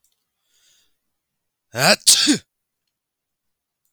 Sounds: Sneeze